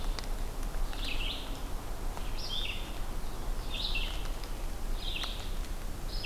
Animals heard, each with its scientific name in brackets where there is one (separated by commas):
Red-eyed Vireo (Vireo olivaceus)